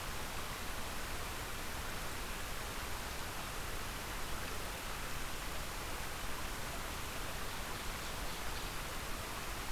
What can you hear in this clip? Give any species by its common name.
Ovenbird